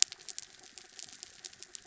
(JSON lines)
{"label": "anthrophony, mechanical", "recorder": "SoundTrap 300"}